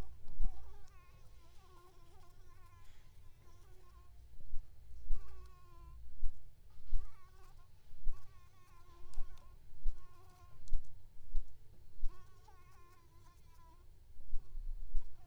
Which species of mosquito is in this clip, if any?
Anopheles ziemanni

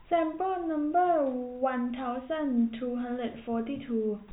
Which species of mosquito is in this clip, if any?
no mosquito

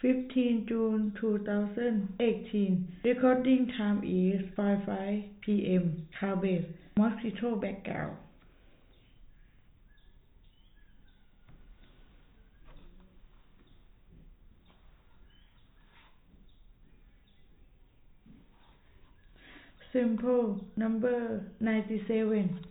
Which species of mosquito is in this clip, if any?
no mosquito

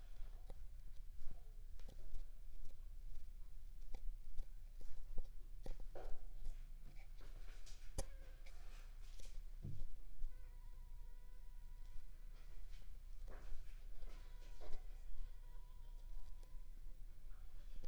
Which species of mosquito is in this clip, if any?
Aedes aegypti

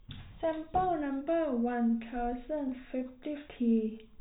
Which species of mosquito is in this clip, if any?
no mosquito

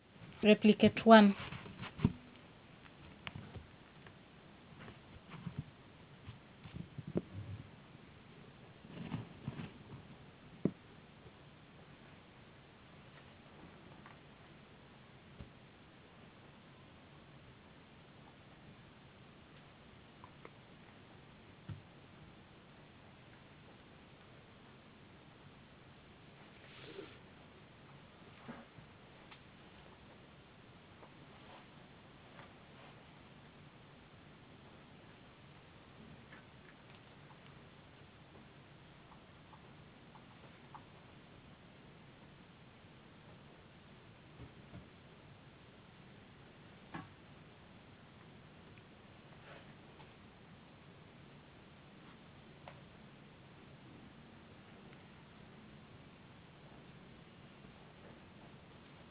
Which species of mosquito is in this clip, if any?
no mosquito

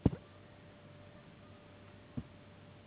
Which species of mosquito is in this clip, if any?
Anopheles gambiae s.s.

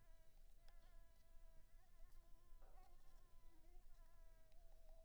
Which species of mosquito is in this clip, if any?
Anopheles coustani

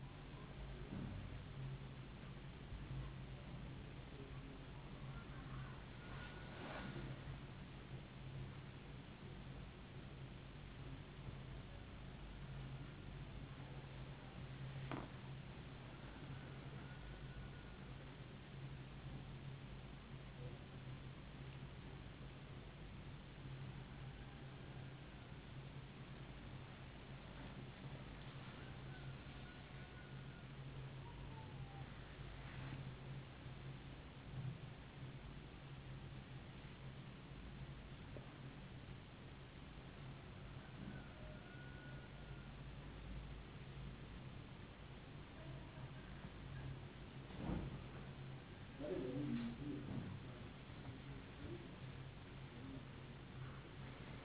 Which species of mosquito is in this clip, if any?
no mosquito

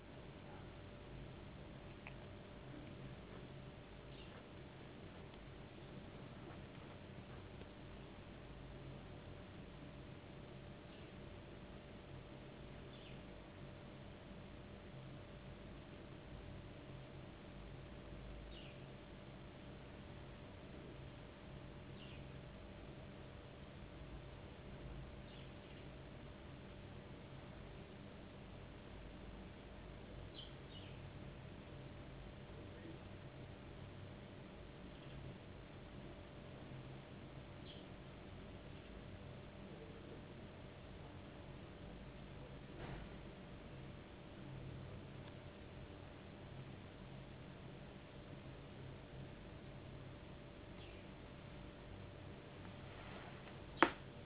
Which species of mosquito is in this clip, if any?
no mosquito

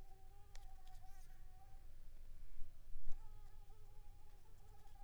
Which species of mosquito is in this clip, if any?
Anopheles squamosus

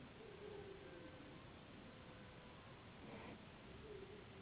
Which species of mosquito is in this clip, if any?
Anopheles gambiae s.s.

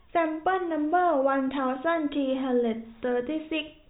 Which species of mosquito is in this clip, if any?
no mosquito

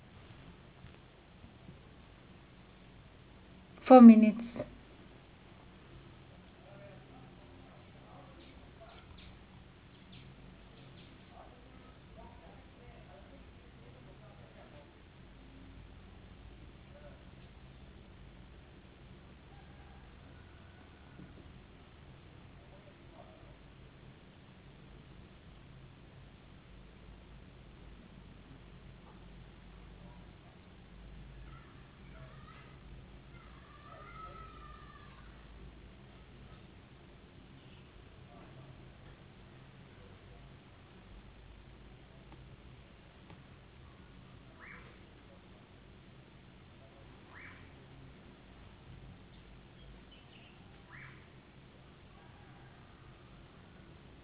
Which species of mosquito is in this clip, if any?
no mosquito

